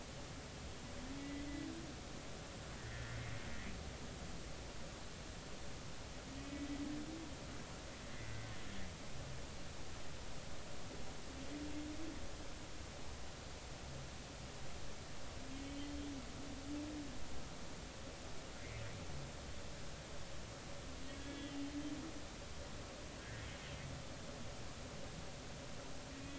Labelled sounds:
1.2	1.4	humpback whale, 1.9 to 2.0 kHz
2.8	3.2	humpback whale, 1.7 to 2.0 kHz
6.5	6.8	humpback whale, 1.9 to 2.1 kHz
21.2	21.6	humpback whale, 1.6 to 3.4 kHz
23.2	23.5	humpback whale, 1.5 to 2.0 kHz

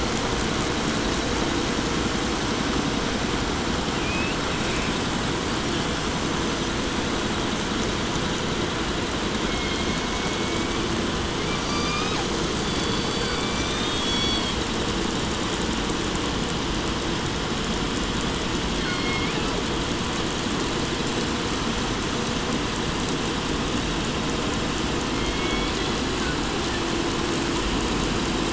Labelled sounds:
9.4	11.0	killer whale, southern resident, 1.4 to 5.2 kHz
11.3	14.1	killer whale, southern resident, 0.58 to 6.5 kHz
13.8	14.7	killer whale, 1.1 to 6.1 kHz
18.7	19.7	killer whale, southern resident, J pod, call S01, 0.73 to 7.5 kHz
24.9	26.1	killer whale, southern resident, J pod, call S01, 0.96 to 5.5 kHz

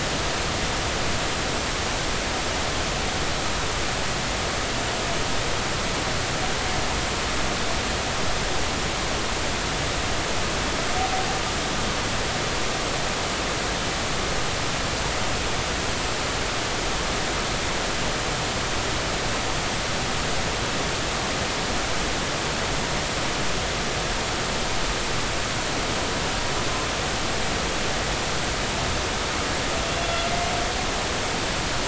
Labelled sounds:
30.0	30.3	humpback whale, 3.3 to 3.5 kHz

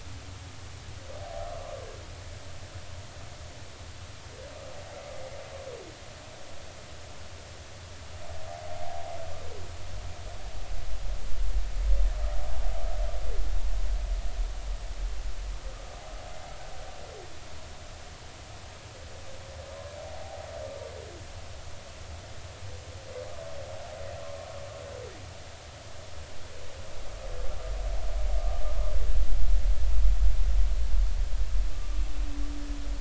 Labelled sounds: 1.2	1.5	humpback whale, 0.80 to 0.83 kHz
20.0	20.5	humpback whale, 0.80 to 0.86 kHz
31.7	32.0	humpback whale, 1.1 to 1.2 kHz

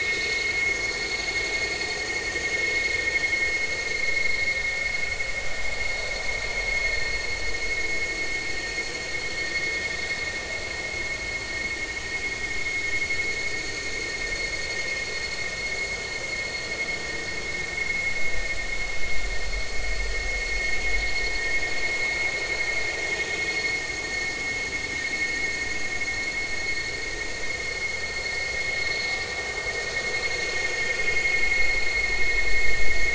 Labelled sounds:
0.7	1.0	vessel noise, 3.3 to 3.5 kHz

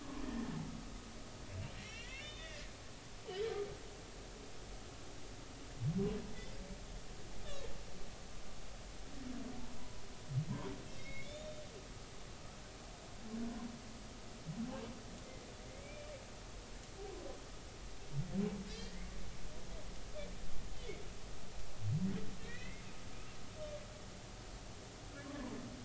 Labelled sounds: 0.0	0.5	humpback whale, 0.96 to 1.9 kHz
1.8	3.2	humpback whale, 1.7 to 3.7 kHz
7.4	7.7	humpback whale, 3.2 to 3.7 kHz
9.8	11.6	humpback whale, 0.93 to 3.9 kHz
15.7	16.1	humpback whale, 2.1 to 2.4 kHz
18.7	19.1	humpback whale, 1.7 to 2.4 kHz
22.4	22.8	humpback whale, 1.7 to 2.7 kHz
25.2	25.6	humpback whale, 0.86 to 1.2 kHz

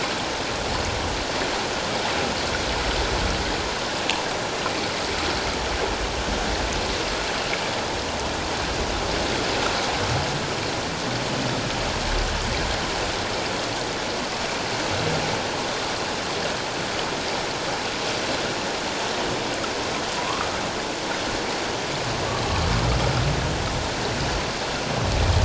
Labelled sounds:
20.1	20.5	humpback whale, 0.94 to 1.4 kHz

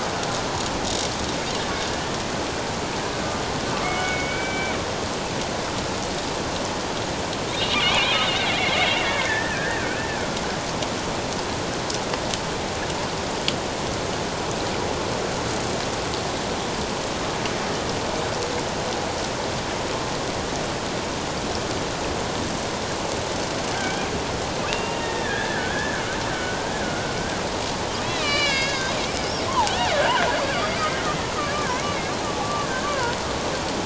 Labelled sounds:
3.8	4.8	killer whale, Bigg's (transient), 1.5 to 2.4 kHz
7.8	10.1	killer whale, Bigg's (transient), 1.5 to 2.8 kHz
23.7	26.0	killer whale, Bigg's (transient), 1.4 to 2.8 kHz
26.3	27.1	killer whale, Bigg's (transient), 1.4 to 1.7 kHz
28.0	28.9	killer whale, Bigg's (transient), 1.1 to 5.3 kHz
30.3	30.9	killer whale, Bigg's (transient), 4.5 to 4.8 kHz
31.5	33.2	killer whale, Bigg's (transient), 0.91 to 2.3 kHz

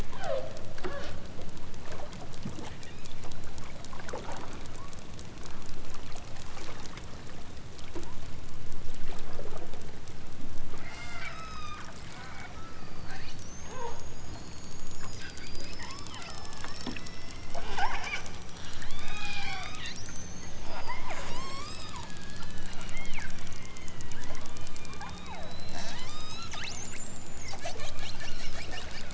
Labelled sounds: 0.1	1.2	killer whale, southern Alaska resident, 0.23 to 5.2 kHz
2.6	3.0	killer whale, southern Alaska resident, 1.4 to 2.3 kHz
10.7	13.0	killer whale, southern Alaska resident, 0.43 to 8.0 kHz
13.6	14.0	killer whale, southern Alaska resident, 0.37 to 4.0 kHz
15.7	18.3	killer whale, southern Alaska resident, 0.41 to 6.7 kHz
18.8	19.8	killer whale, southern Alaska resident, 0.41 to 6.7 kHz
20.7	26.5	killer whale, southern Alaska resident, 0.41 to 8.0 kHz

